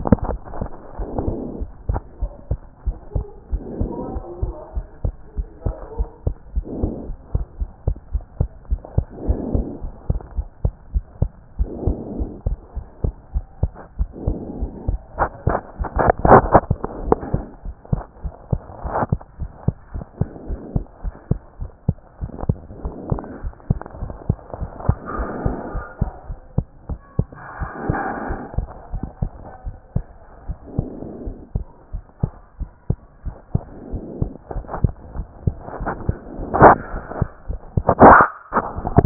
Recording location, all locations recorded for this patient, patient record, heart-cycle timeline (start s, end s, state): pulmonary valve (PV)
aortic valve (AV)+pulmonary valve (PV)+mitral valve (MV)
#Age: Child
#Sex: Female
#Height: 101.0 cm
#Weight: 14.7 kg
#Pregnancy status: False
#Murmur: Absent
#Murmur locations: nan
#Most audible location: nan
#Systolic murmur timing: nan
#Systolic murmur shape: nan
#Systolic murmur grading: nan
#Systolic murmur pitch: nan
#Systolic murmur quality: nan
#Diastolic murmur timing: nan
#Diastolic murmur shape: nan
#Diastolic murmur grading: nan
#Diastolic murmur pitch: nan
#Diastolic murmur quality: nan
#Outcome: Normal
#Campaign: 2014 screening campaign
0.00	28.94	unannotated
28.94	29.04	S1
29.04	29.20	systole
29.20	29.32	S2
29.32	29.66	diastole
29.66	29.76	S1
29.76	29.94	systole
29.94	30.04	S2
30.04	30.48	diastole
30.48	30.58	S1
30.58	30.76	systole
30.76	30.88	S2
30.88	31.24	diastole
31.24	31.36	S1
31.36	31.54	systole
31.54	31.66	S2
31.66	31.94	diastole
31.94	32.04	S1
32.04	32.22	systole
32.22	32.32	S2
32.32	32.60	diastole
32.60	32.70	S1
32.70	32.88	systole
32.88	32.98	S2
32.98	33.26	diastole
33.26	33.36	S1
33.36	33.54	systole
33.54	33.62	S2
33.62	33.92	diastole
33.92	34.04	S1
34.04	34.20	systole
34.20	34.30	S2
34.30	34.54	diastole
34.54	34.66	S1
34.66	34.82	systole
34.82	34.92	S2
34.92	35.16	diastole
35.16	35.28	S1
35.28	35.46	systole
35.46	35.49	S2
35.49	39.06	unannotated